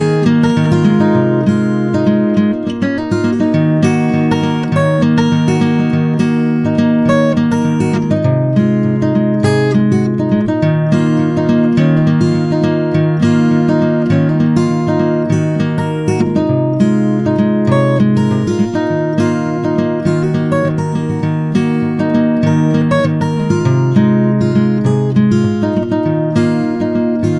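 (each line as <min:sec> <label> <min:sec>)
0:00.0 A clear guitar song is being played. 0:27.4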